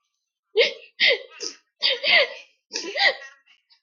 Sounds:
Sigh